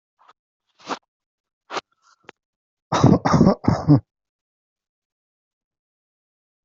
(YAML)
expert_labels:
- quality: good
  cough_type: dry
  dyspnea: false
  wheezing: false
  stridor: false
  choking: false
  congestion: false
  nothing: true
  diagnosis: upper respiratory tract infection
  severity: mild
gender: female
respiratory_condition: false
fever_muscle_pain: false
status: COVID-19